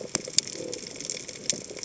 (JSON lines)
{"label": "biophony", "recorder": "HydroMoth"}